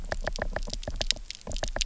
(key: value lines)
label: biophony, knock
recorder: SoundTrap 300